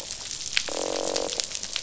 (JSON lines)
{"label": "biophony, croak", "recorder": "SoundTrap 500"}